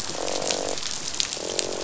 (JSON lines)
{"label": "biophony, croak", "recorder": "SoundTrap 500"}